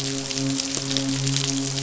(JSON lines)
{"label": "biophony, midshipman", "recorder": "SoundTrap 500"}